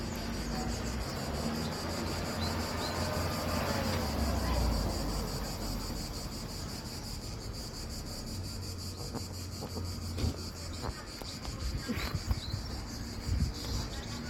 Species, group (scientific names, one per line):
Cicada orni
Cicadidae